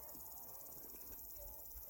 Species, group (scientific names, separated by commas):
Omocestus viridulus, Orthoptera